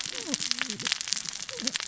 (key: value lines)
label: biophony, cascading saw
recorder: SoundTrap 600 or HydroMoth